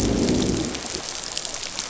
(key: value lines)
label: biophony, growl
recorder: SoundTrap 500